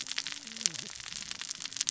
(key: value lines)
label: biophony, cascading saw
recorder: SoundTrap 600 or HydroMoth